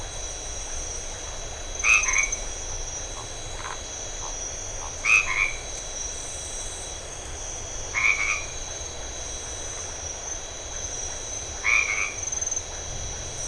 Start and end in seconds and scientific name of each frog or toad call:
1.8	2.4	Boana albomarginata
3.5	3.9	Phyllomedusa distincta
5.0	5.5	Boana albomarginata
7.9	8.6	Boana albomarginata
11.6	12.2	Boana albomarginata